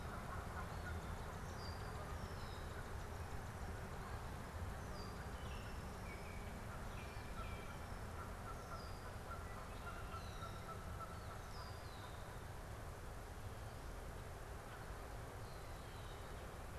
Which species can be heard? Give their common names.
Canada Goose, Red-winged Blackbird, Baltimore Oriole